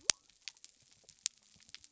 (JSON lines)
{"label": "biophony", "recorder": "SoundTrap 300"}